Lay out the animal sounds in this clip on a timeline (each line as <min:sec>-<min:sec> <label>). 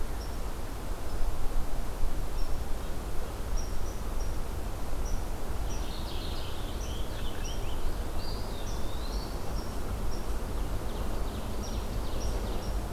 0:05.5-0:07.9 Purple Finch (Haemorhous purpureus)
0:08.2-0:09.6 Eastern Wood-Pewee (Contopus virens)
0:10.4-0:12.8 Ovenbird (Seiurus aurocapilla)